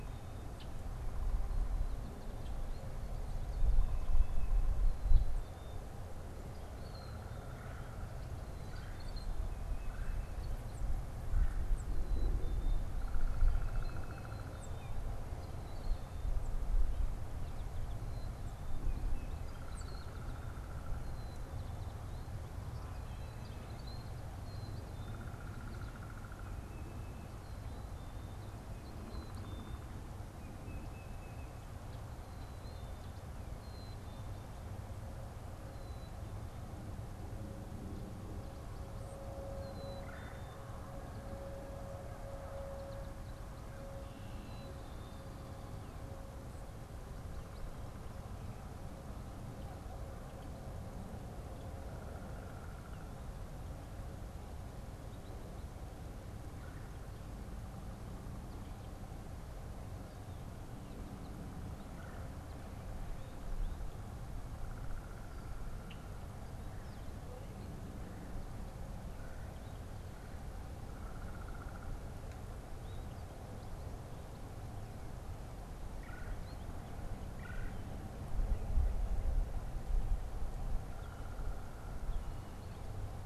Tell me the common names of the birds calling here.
unidentified bird, Black-capped Chickadee, Red-bellied Woodpecker, Tufted Titmouse